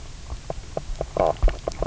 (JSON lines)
{"label": "biophony, knock croak", "recorder": "SoundTrap 300"}